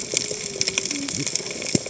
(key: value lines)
label: biophony, cascading saw
recorder: HydroMoth